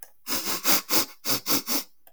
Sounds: Sniff